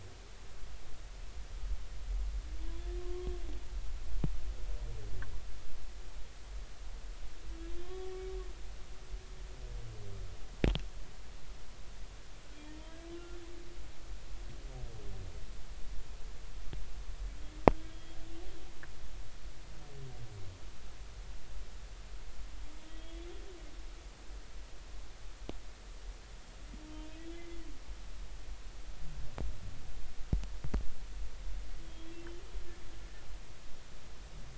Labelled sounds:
3.0	3.3	humpback whale, 1.0 to 1.1 kHz
7.8	8.1	humpback whale, 1.0 to 3.4 kHz
17.9	18.2	humpback whale, 3.2 to 3.4 kHz
22.9	23.3	humpback whale, 3.2 to 3.5 kHz
27.0	27.7	humpback whale, 1.9 to 3.4 kHz
31.8	32.2	humpback whale, 3.2 to 3.4 kHz

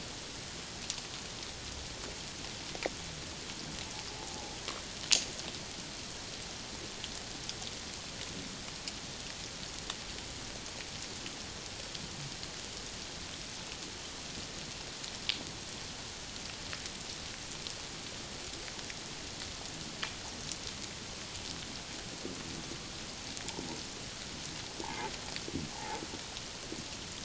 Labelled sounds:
4.1	4.5	humpback whale, 0.78 to 1.0 kHz
24.8	25.1	humpback whale, 0.78 to 1.1 kHz
25.7	26.0	humpback whale, 0.78 to 0.94 kHz

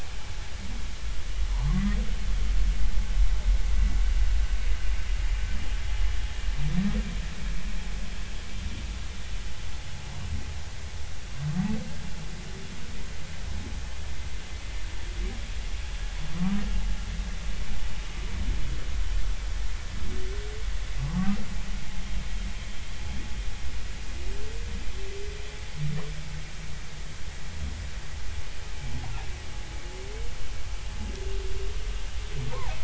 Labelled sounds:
1.7	2.0	humpback whale, 1.9 to 2.1 kHz
16.3	16.6	humpback whale, 0.99 to 1.3 kHz
32.5	32.8	humpback whale, 0.80 to 1.2 kHz

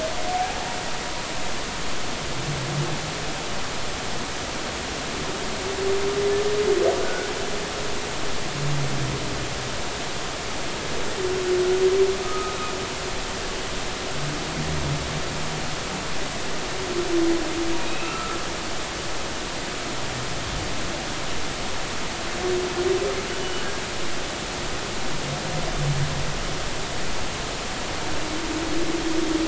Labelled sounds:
7.0	7.3	humpback whale, 1.4 to 1.6 kHz
12.2	12.6	humpback whale, 1.1 to 1.3 kHz
17.8	18.4	humpback whale, 1.2 to 2.8 kHz
23.4	23.7	humpback whale, 2.8 to 3.0 kHz

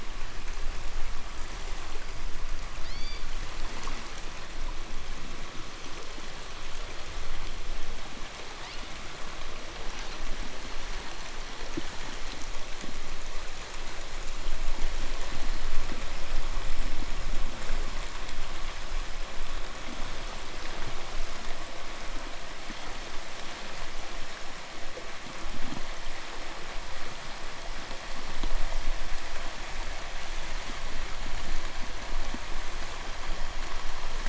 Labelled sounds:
2.6	3.5	killer whale, 1.7 to 7.3 kHz
8.3	9.1	killer whale, 1.7 to 5.7 kHz
9.5	10.5	killer whale, 1.3 to 8.0 kHz
15.1	16.0	killer whale, 3.8 to 4.9 kHz

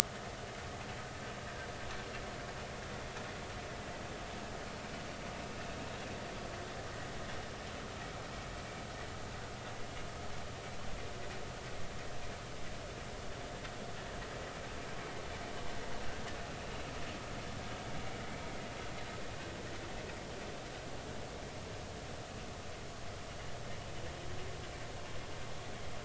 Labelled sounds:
8.6	8.8	vessel noise, 2.2 to 2.4 kHz

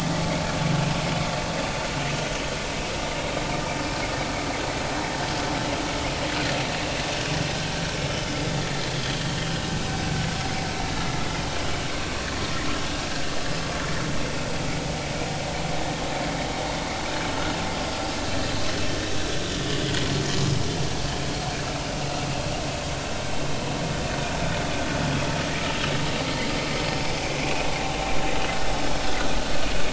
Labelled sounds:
19.7	19.9	vessel noise, 2.8 to 3.0 kHz
27.4	27.7	vessel noise, 2.1 to 2.6 kHz

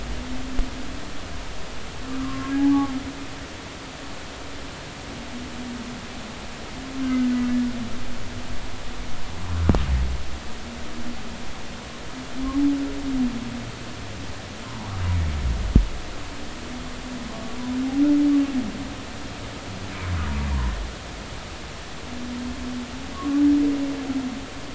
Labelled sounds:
2.2	2.9	humpback whale, 0.80 to 1.2 kHz
7.0	7.3	humpback whale, 1.5 to 1.6 kHz
14.6	14.9	humpback whale, 0.80 to 1.1 kHz
17.3	17.6	humpback whale, 1.0 to 1.2 kHz
23.1	23.4	humpback whale, 0.99 to 1.2 kHz

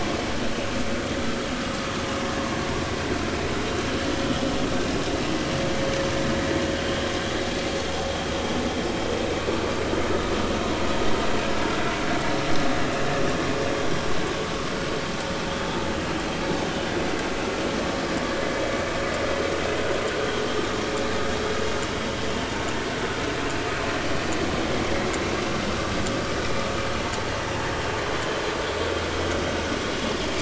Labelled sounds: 28.2	28.4	vessel noise, 2.9 to 3.2 kHz

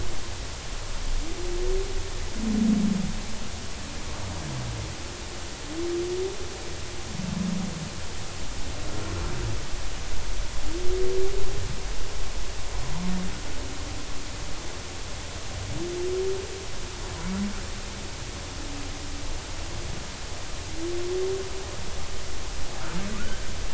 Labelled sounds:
23.1	23.4	humpback whale, 1.2 to 1.7 kHz

